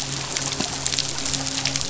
{"label": "biophony, midshipman", "recorder": "SoundTrap 500"}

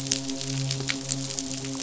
{"label": "biophony, midshipman", "recorder": "SoundTrap 500"}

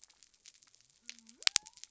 {"label": "biophony", "recorder": "SoundTrap 300"}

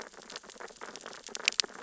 {"label": "biophony, sea urchins (Echinidae)", "recorder": "SoundTrap 600 or HydroMoth"}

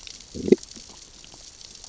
{"label": "biophony, growl", "recorder": "SoundTrap 600 or HydroMoth"}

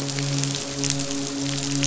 {"label": "biophony, midshipman", "recorder": "SoundTrap 500"}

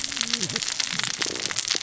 {"label": "biophony, cascading saw", "recorder": "SoundTrap 600 or HydroMoth"}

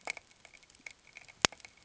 {"label": "ambient", "recorder": "HydroMoth"}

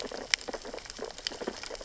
{"label": "biophony, sea urchins (Echinidae)", "recorder": "SoundTrap 600 or HydroMoth"}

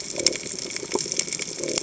{"label": "biophony", "recorder": "HydroMoth"}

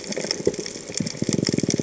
{"label": "biophony", "recorder": "HydroMoth"}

